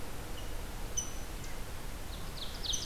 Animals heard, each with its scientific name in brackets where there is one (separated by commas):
Rose-breasted Grosbeak (Pheucticus ludovicianus), Ovenbird (Seiurus aurocapilla)